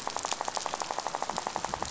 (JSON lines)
{"label": "biophony, rattle", "recorder": "SoundTrap 500"}